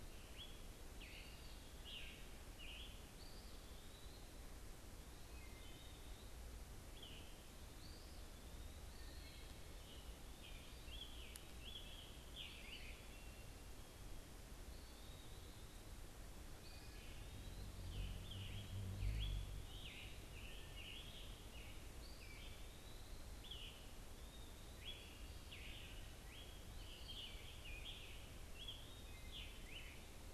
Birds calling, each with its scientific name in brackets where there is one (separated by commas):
Eastern Wood-Pewee (Contopus virens), Scarlet Tanager (Piranga olivacea), Wood Thrush (Hylocichla mustelina)